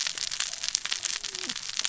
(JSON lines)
{"label": "biophony, cascading saw", "recorder": "SoundTrap 600 or HydroMoth"}